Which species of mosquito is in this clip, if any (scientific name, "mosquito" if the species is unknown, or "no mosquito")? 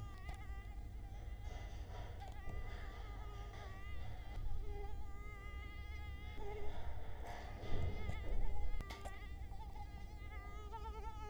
Culex quinquefasciatus